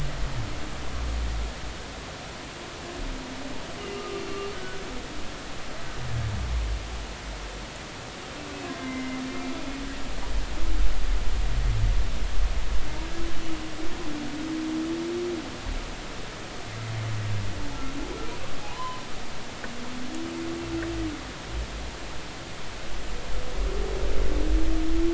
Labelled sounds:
3.8	4.8	humpback whale, 1.2 to 2.9 kHz
8.8	9.2	humpback whale, 2.0 to 2.1 kHz
18.7	19.0	humpback whale, 0.93 to 1.1 kHz

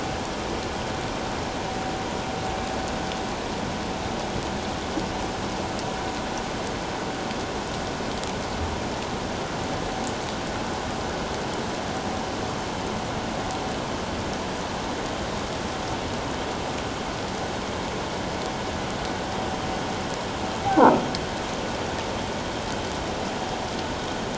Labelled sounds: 20.7	21.0	croaking sound likely from a nearby submerged object, 0.78 to 1.1 kHz

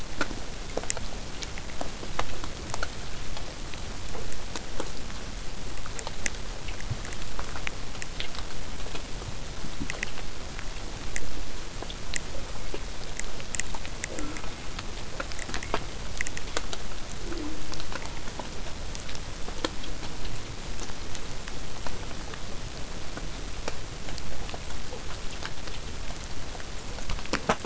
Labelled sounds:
0.0	5.0	vessel noise, 0 to 8.0 kHz
14.1	14.8	killer whale, southern resident, J pod, call S04, 0.15 to 2.4 kHz
17.1	17.9	killer whale, southern resident, J pod, call S04, 0.12 to 1.1 kHz

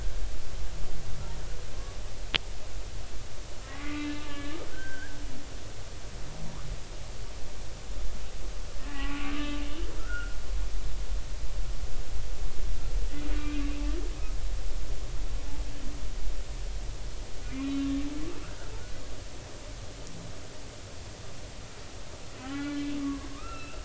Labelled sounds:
3.6	5.2	humpback whale, 1.1 to 2.7 kHz
8.9	9.6	humpback whale, 0.80 to 1.2 kHz
10.0	10.4	humpback whale, 1.2 to 1.6 kHz
13.4	13.7	humpback whale, 2.3 to 2.6 kHz
17.4	18.7	humpback whale, 1.3 to 3.9 kHz
22.4	23.8	humpback whale, 0.93 to 3.5 kHz

